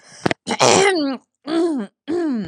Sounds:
Throat clearing